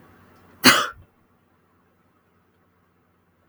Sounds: Sneeze